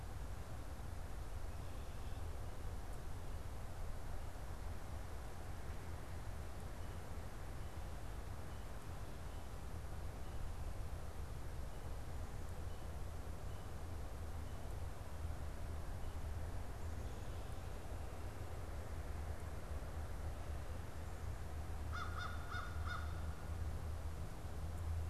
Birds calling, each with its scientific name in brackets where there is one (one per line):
American Crow (Corvus brachyrhynchos)